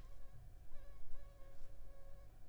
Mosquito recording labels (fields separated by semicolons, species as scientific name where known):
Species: Anopheles funestus s.s.; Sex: female; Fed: unfed; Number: one; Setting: cup